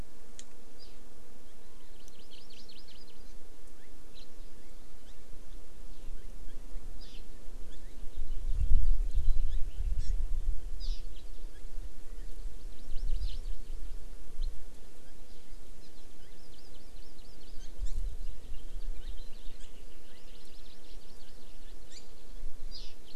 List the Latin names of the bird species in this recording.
Chlorodrepanis virens, Haemorhous mexicanus